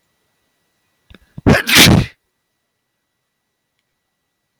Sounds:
Sneeze